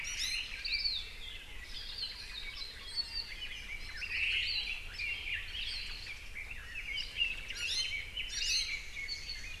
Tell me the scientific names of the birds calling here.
Drepanis coccinea, Loxops coccineus, Leiothrix lutea, Myadestes obscurus, Loxops mana, Himatione sanguinea